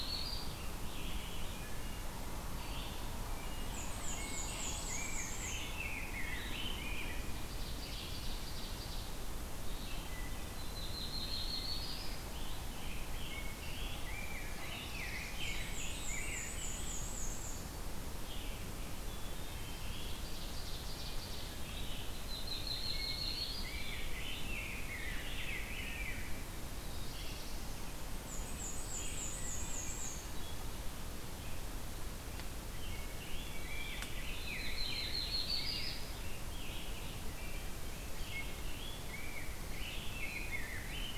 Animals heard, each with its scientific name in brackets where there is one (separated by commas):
Black-and-white Warbler (Mniotilta varia), Wood Thrush (Hylocichla mustelina), Black-throated Blue Warbler (Setophaga caerulescens), Yellow-rumped Warbler (Setophaga coronata), Red-eyed Vireo (Vireo olivaceus), Ovenbird (Seiurus aurocapilla), Rose-breasted Grosbeak (Pheucticus ludovicianus)